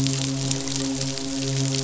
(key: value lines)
label: biophony, midshipman
recorder: SoundTrap 500